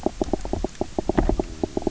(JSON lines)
{"label": "biophony, knock croak", "recorder": "SoundTrap 300"}